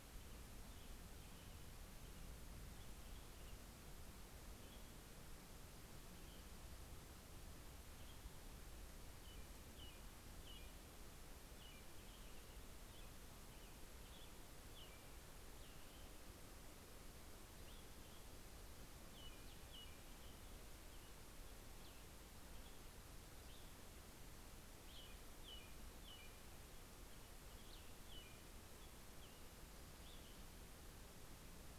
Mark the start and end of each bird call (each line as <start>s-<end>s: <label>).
0.0s-0.9s: American Robin (Turdus migratorius)
8.4s-15.8s: American Robin (Turdus migratorius)
17.0s-28.6s: Cassin's Vireo (Vireo cassinii)
18.8s-20.6s: American Robin (Turdus migratorius)
24.5s-30.5s: American Robin (Turdus migratorius)